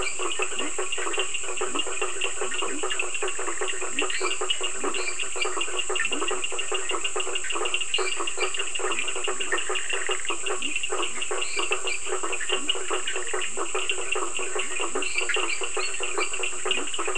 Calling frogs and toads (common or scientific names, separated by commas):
Leptodactylus latrans, blacksmith tree frog, Cochran's lime tree frog, Bischoff's tree frog, lesser tree frog